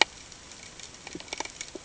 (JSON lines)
{"label": "ambient", "recorder": "HydroMoth"}